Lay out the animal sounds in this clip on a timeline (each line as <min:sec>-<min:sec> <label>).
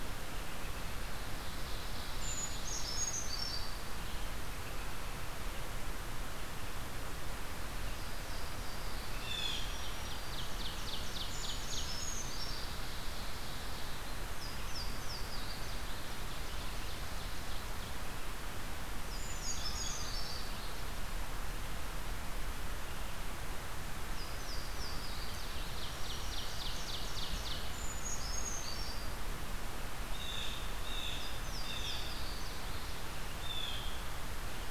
0:00.0-0:18.3 Red-eyed Vireo (Vireo olivaceus)
0:01.0-0:03.0 Ovenbird (Seiurus aurocapilla)
0:02.1-0:03.9 Brown Creeper (Certhia americana)
0:07.5-0:09.6 Louisiana Waterthrush (Parkesia motacilla)
0:09.0-0:09.9 Blue Jay (Cyanocitta cristata)
0:09.4-0:14.1 Ovenbird (Seiurus aurocapilla)
0:11.1-0:13.0 Brown Creeper (Certhia americana)
0:14.2-0:16.1 Louisiana Waterthrush (Parkesia motacilla)
0:15.7-0:17.7 Ovenbird (Seiurus aurocapilla)
0:18.8-0:20.7 Louisiana Waterthrush (Parkesia motacilla)
0:18.9-0:20.9 Brown Creeper (Certhia americana)
0:19.4-0:20.1 Blue Jay (Cyanocitta cristata)
0:23.8-0:26.0 Louisiana Waterthrush (Parkesia motacilla)
0:25.3-0:27.8 Ovenbird (Seiurus aurocapilla)
0:25.6-0:26.9 Black-throated Green Warbler (Setophaga virens)
0:27.5-0:29.2 Brown Creeper (Certhia americana)
0:30.1-0:34.1 Blue Jay (Cyanocitta cristata)
0:31.0-0:33.0 Louisiana Waterthrush (Parkesia motacilla)